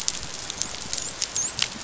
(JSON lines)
{"label": "biophony, dolphin", "recorder": "SoundTrap 500"}